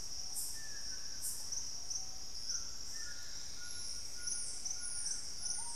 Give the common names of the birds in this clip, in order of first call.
Dusky-throated Antshrike, White-throated Toucan, Screaming Piha, unidentified bird